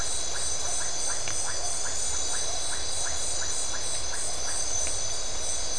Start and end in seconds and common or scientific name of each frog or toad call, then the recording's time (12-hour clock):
0.2	4.9	Iporanga white-lipped frog
1:15am